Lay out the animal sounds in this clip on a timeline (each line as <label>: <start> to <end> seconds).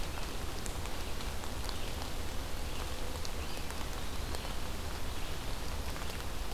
Eastern Wood-Pewee (Contopus virens): 3.3 to 4.6 seconds